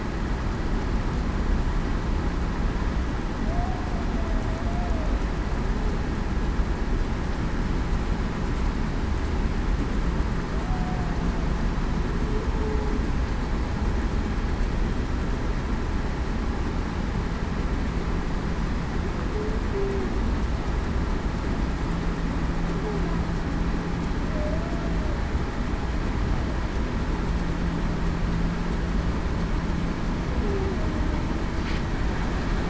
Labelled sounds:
3.4	3.8	humpback whale, 0.61 to 0.77 kHz
10.6	11.0	humpback whale, 0.68 to 0.77 kHz
19.7	20.1	humpback whale, 0.35 to 0.42 kHz

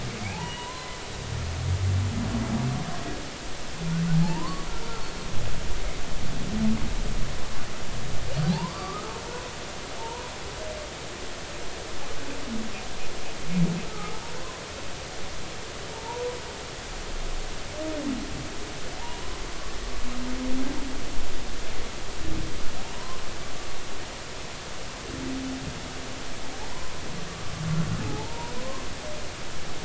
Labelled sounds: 0.3	1.0	humpback whale, 0.80 to 3.0 kHz
4.2	4.7	humpback whale, 0.80 to 1.2 kHz
8.5	9.1	humpback whale, 0.80 to 1.3 kHz
10.0	10.2	humpback whale, 0.86 to 1.1 kHz
13.9	14.2	humpback whale, 1.2 to 1.3 kHz
15.9	16.3	humpback whale, 0.83 to 1.0 kHz
19.0	19.4	humpback whale, 0.80 to 1.1 kHz
22.8	23.2	humpback whale, 0.86 to 1.1 kHz
26.7	27.0	humpback whale, 0.93 to 1.1 kHz
28.1	28.6	humpback whale, 0.80 to 0.99 kHz

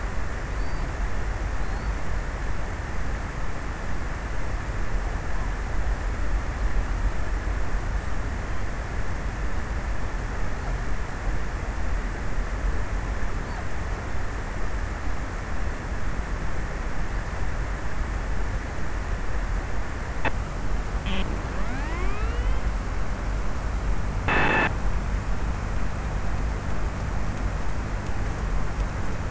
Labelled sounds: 0.3	2.0	killer whale, offshore, 3.4 to 8.0 kHz

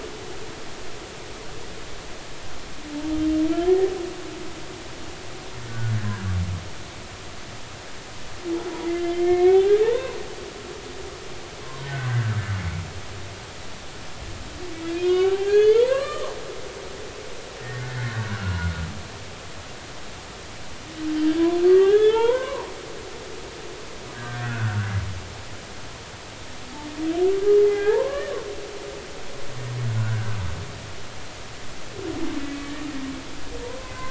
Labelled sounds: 3.5	3.9	humpback whale, 1.6 to 1.9 kHz
5.7	6.2	humpback whale, 1.4 to 1.8 kHz
9.1	10.2	humpback whale, 0.83 to 2.3 kHz
11.8	12.4	humpback whale, 1.4 to 1.8 kHz
15.0	16.4	humpback whale, 0.80 to 4.9 kHz
17.8	18.7	humpback whale, 0.90 to 1.9 kHz
21.2	22.7	humpback whale, 0.83 to 3.6 kHz
24.1	24.9	humpback whale, 1.2 to 1.7 kHz
27.3	28.3	humpback whale, 0.80 to 2.1 kHz
30.0	30.4	humpback whale, 1.3 to 1.7 kHz
33.6	34.0	humpback whale, 0.90 to 2.1 kHz

